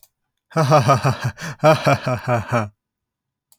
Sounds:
Laughter